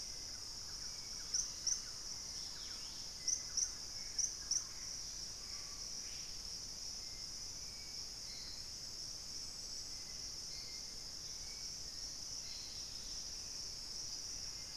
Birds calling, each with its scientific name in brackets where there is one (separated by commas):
Dusky-capped Greenlet (Pachysylvia hypoxantha), Gray Antbird (Cercomacra cinerascens), Black-faced Antthrush (Formicarius analis), Thrush-like Wren (Campylorhynchus turdinus), Screaming Piha (Lipaugus vociferans), Hauxwell's Thrush (Turdus hauxwelli)